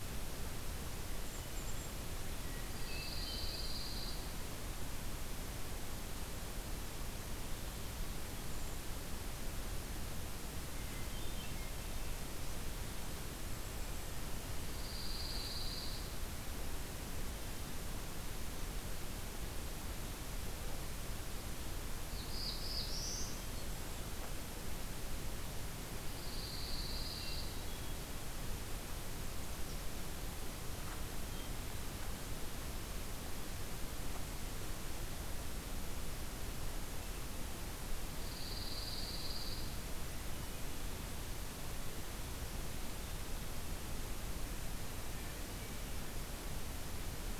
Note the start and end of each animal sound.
[1.05, 2.25] Black-capped Chickadee (Poecile atricapillus)
[2.57, 4.35] Pine Warbler (Setophaga pinus)
[10.41, 12.08] Hermit Thrush (Catharus guttatus)
[13.16, 14.48] Black-capped Chickadee (Poecile atricapillus)
[14.60, 16.09] Pine Warbler (Setophaga pinus)
[21.82, 23.36] Black-throated Blue Warbler (Setophaga caerulescens)
[25.90, 27.56] Pine Warbler (Setophaga pinus)
[27.01, 28.40] Hermit Thrush (Catharus guttatus)
[38.15, 39.74] Pine Warbler (Setophaga pinus)

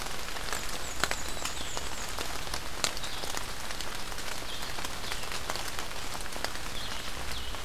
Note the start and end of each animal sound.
[0.31, 2.16] Black-and-white Warbler (Mniotilta varia)
[1.54, 7.64] Blue-headed Vireo (Vireo solitarius)

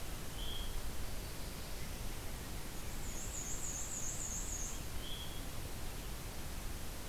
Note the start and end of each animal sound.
[0.26, 0.77] Veery (Catharus fuscescens)
[0.58, 2.28] Black-throated Blue Warbler (Setophaga caerulescens)
[2.72, 5.01] Black-and-white Warbler (Mniotilta varia)
[5.00, 5.43] Veery (Catharus fuscescens)

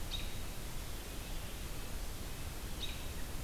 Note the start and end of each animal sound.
[0.00, 0.36] American Robin (Turdus migratorius)
[2.76, 3.02] American Robin (Turdus migratorius)

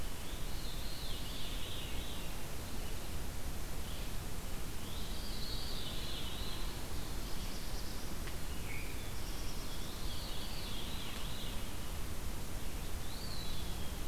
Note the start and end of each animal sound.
[0.04, 2.21] Veery (Catharus fuscescens)
[4.78, 6.67] Veery (Catharus fuscescens)
[6.71, 8.28] Black-throated Blue Warbler (Setophaga caerulescens)
[8.41, 9.14] Veery (Catharus fuscescens)
[8.66, 9.87] Black-throated Blue Warbler (Setophaga caerulescens)
[9.63, 11.65] Veery (Catharus fuscescens)
[12.90, 14.08] Eastern Wood-Pewee (Contopus virens)

